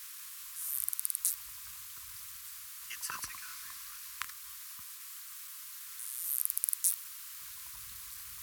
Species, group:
Poecilimon gracilis, Orthoptera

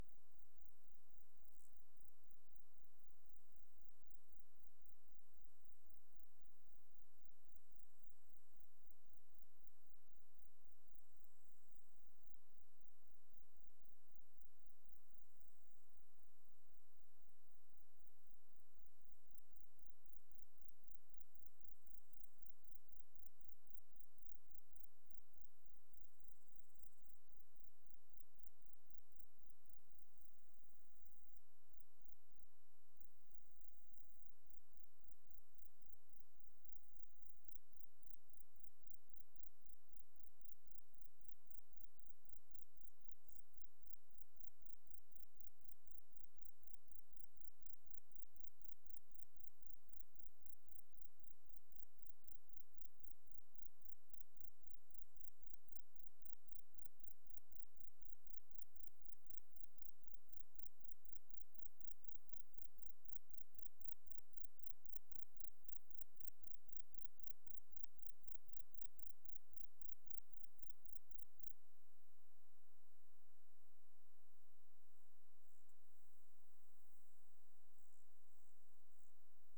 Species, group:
Platycleis albopunctata, Orthoptera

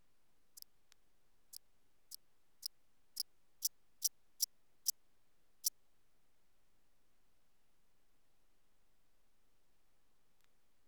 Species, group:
Eupholidoptera smyrnensis, Orthoptera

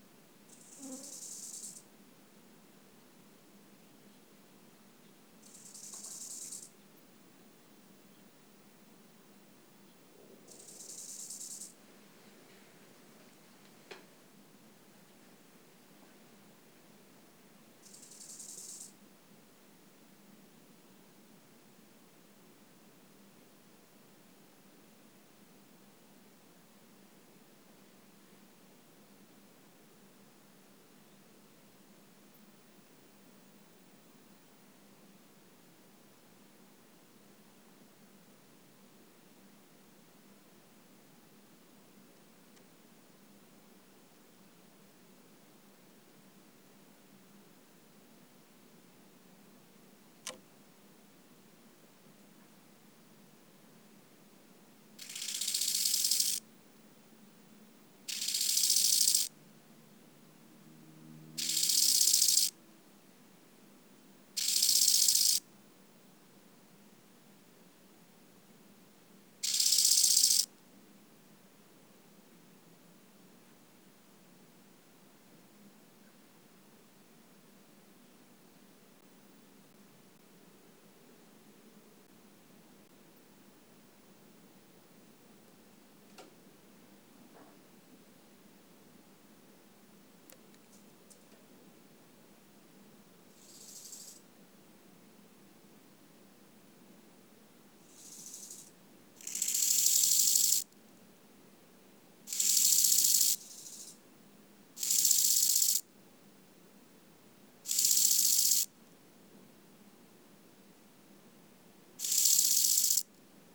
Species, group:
Chorthippus eisentrauti, Orthoptera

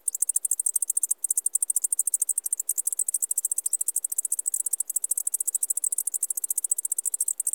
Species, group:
Decticus albifrons, Orthoptera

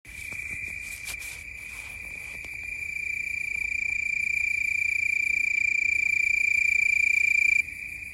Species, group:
Oecanthus californicus, Orthoptera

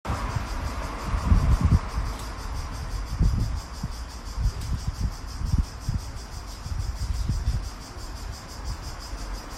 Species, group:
Cicada orni, Cicadidae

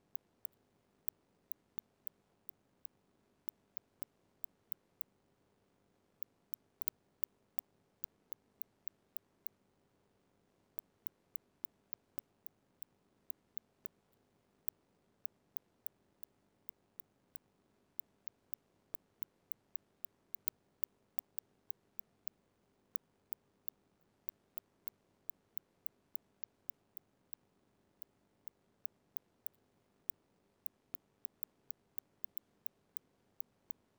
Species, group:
Cyrtaspis scutata, Orthoptera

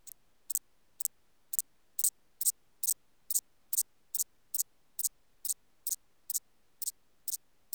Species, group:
Thyreonotus corsicus, Orthoptera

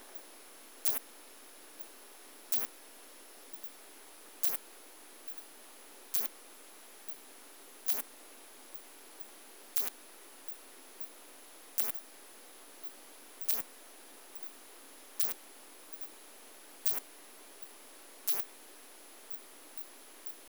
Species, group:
Poecilimon thessalicus, Orthoptera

